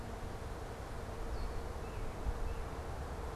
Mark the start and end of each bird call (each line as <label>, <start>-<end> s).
Red-winged Blackbird (Agelaius phoeniceus), 1.1-3.4 s
unidentified bird, 1.8-3.4 s